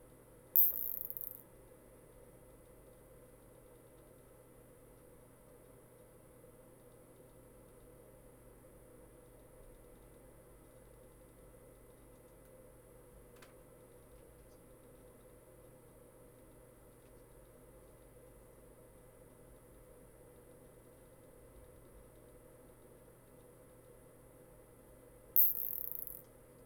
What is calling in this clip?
Isophya longicaudata, an orthopteran